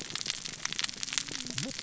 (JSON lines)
{"label": "biophony, cascading saw", "recorder": "SoundTrap 600 or HydroMoth"}